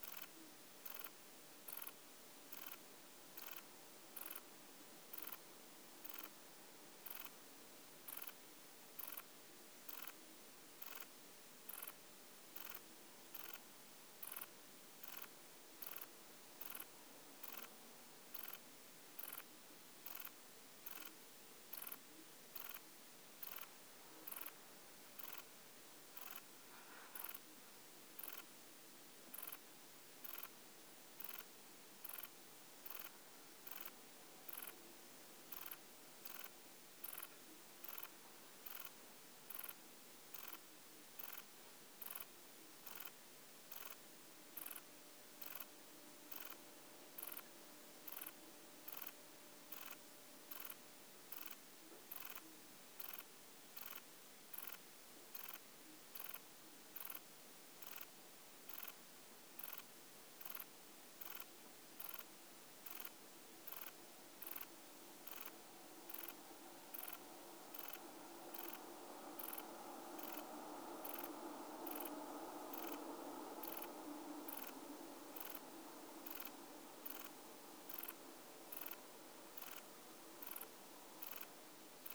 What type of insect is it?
orthopteran